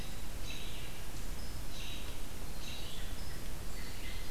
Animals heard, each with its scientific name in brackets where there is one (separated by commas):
American Robin (Turdus migratorius), Red-eyed Vireo (Vireo olivaceus)